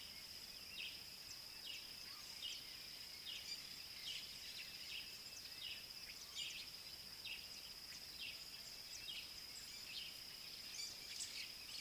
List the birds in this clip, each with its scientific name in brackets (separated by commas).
Parrot-billed Sparrow (Passer gongonensis)